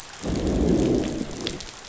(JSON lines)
{"label": "biophony, growl", "recorder": "SoundTrap 500"}